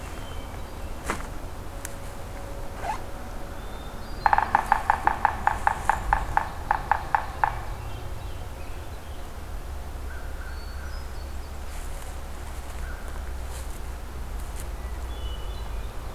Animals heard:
Ovenbird (Seiurus aurocapilla), Hermit Thrush (Catharus guttatus), Yellow-bellied Sapsucker (Sphyrapicus varius), American Crow (Corvus brachyrhynchos)

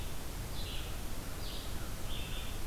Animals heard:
American Crow (Corvus brachyrhynchos), Red-eyed Vireo (Vireo olivaceus)

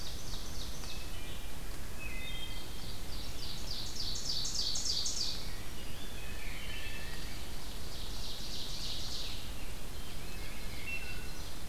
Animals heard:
Ovenbird (Seiurus aurocapilla), Rose-breasted Grosbeak (Pheucticus ludovicianus), Wood Thrush (Hylocichla mustelina)

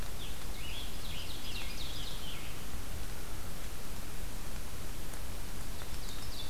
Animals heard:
Scarlet Tanager (Piranga olivacea), Ovenbird (Seiurus aurocapilla)

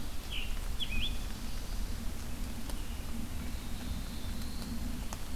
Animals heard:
Scarlet Tanager (Piranga olivacea), Black-throated Blue Warbler (Setophaga caerulescens)

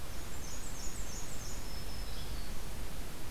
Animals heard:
Yellow-bellied Flycatcher (Empidonax flaviventris), Black-throated Green Warbler (Setophaga virens), Black-and-white Warbler (Mniotilta varia)

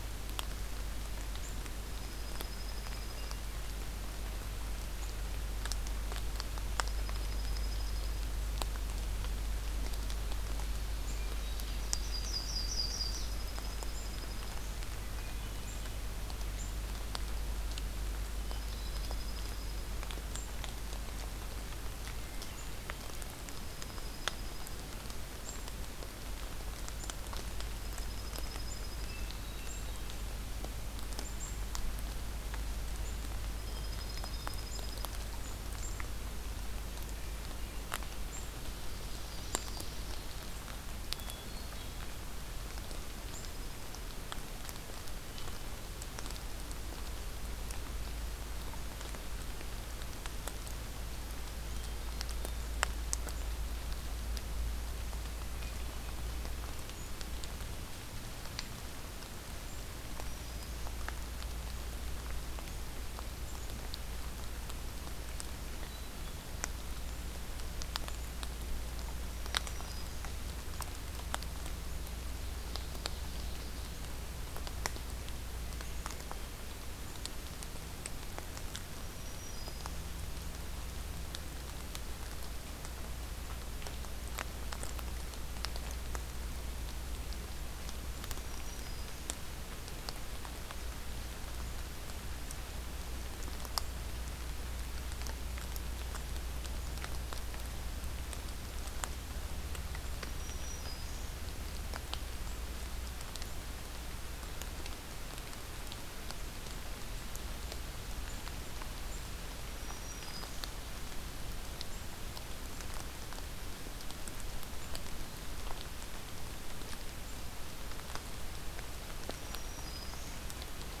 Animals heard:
Dark-eyed Junco (Junco hyemalis), Yellow-rumped Warbler (Setophaga coronata), Black-capped Chickadee (Poecile atricapillus), Ovenbird (Seiurus aurocapilla), Black-throated Green Warbler (Setophaga virens), Hermit Thrush (Catharus guttatus)

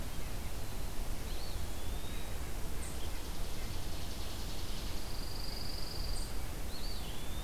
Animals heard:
Eastern Wood-Pewee (Contopus virens), Pine Warbler (Setophaga pinus), Chipping Sparrow (Spizella passerina), Red-breasted Nuthatch (Sitta canadensis), unidentified call

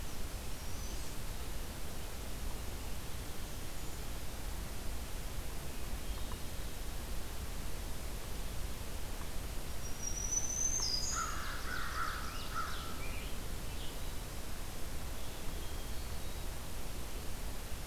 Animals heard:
Ovenbird (Seiurus aurocapilla), Hermit Thrush (Catharus guttatus), American Crow (Corvus brachyrhynchos), unidentified call, Scarlet Tanager (Piranga olivacea), Black-throated Green Warbler (Setophaga virens)

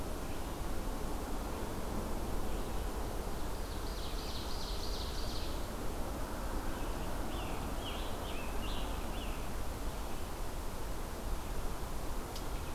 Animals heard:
Ovenbird (Seiurus aurocapilla), Scarlet Tanager (Piranga olivacea)

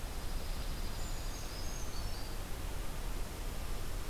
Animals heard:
Dark-eyed Junco (Junco hyemalis), Brown Creeper (Certhia americana)

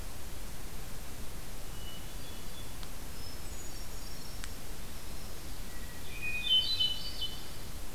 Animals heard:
Yellow-rumped Warbler (Setophaga coronata), Hermit Thrush (Catharus guttatus)

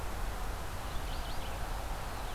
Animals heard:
Red-eyed Vireo (Vireo olivaceus)

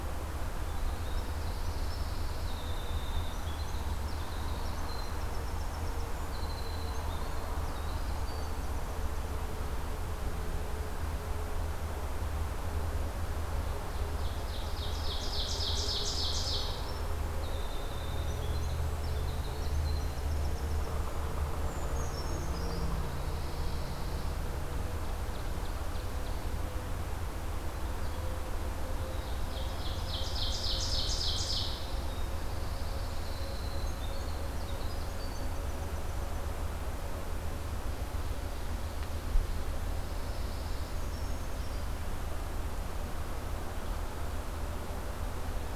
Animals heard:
Pine Warbler (Setophaga pinus), Ovenbird (Seiurus aurocapilla), Winter Wren (Troglodytes hiemalis), Brown Creeper (Certhia americana)

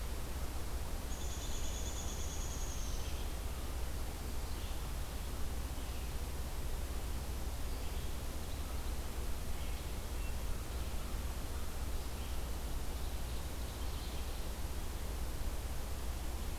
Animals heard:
Hermit Thrush (Catharus guttatus), Red-eyed Vireo (Vireo olivaceus), Downy Woodpecker (Dryobates pubescens)

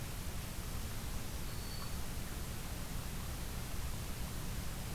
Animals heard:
Black-throated Green Warbler (Setophaga virens)

